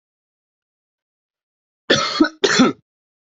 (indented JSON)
{
  "expert_labels": [
    {
      "quality": "ok",
      "cough_type": "dry",
      "dyspnea": false,
      "wheezing": false,
      "stridor": false,
      "choking": false,
      "congestion": false,
      "nothing": true,
      "diagnosis": "healthy cough",
      "severity": "pseudocough/healthy cough"
    },
    {
      "quality": "good",
      "cough_type": "dry",
      "dyspnea": false,
      "wheezing": false,
      "stridor": false,
      "choking": false,
      "congestion": false,
      "nothing": true,
      "diagnosis": "upper respiratory tract infection",
      "severity": "unknown"
    },
    {
      "quality": "good",
      "cough_type": "wet",
      "dyspnea": false,
      "wheezing": false,
      "stridor": false,
      "choking": false,
      "congestion": false,
      "nothing": true,
      "diagnosis": "upper respiratory tract infection",
      "severity": "mild"
    },
    {
      "quality": "good",
      "cough_type": "dry",
      "dyspnea": false,
      "wheezing": false,
      "stridor": false,
      "choking": false,
      "congestion": false,
      "nothing": true,
      "diagnosis": "healthy cough",
      "severity": "pseudocough/healthy cough"
    }
  ],
  "age": 19,
  "gender": "male",
  "respiratory_condition": true,
  "fever_muscle_pain": false,
  "status": "COVID-19"
}